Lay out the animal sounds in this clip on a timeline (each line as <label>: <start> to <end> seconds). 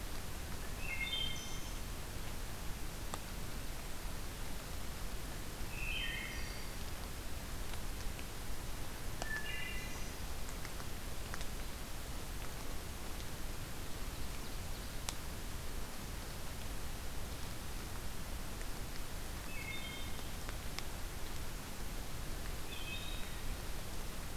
Wood Thrush (Hylocichla mustelina): 0.5 to 1.8 seconds
Wood Thrush (Hylocichla mustelina): 5.5 to 6.8 seconds
Wood Thrush (Hylocichla mustelina): 9.0 to 10.3 seconds
Wood Thrush (Hylocichla mustelina): 19.5 to 20.4 seconds
Wood Thrush (Hylocichla mustelina): 22.5 to 23.4 seconds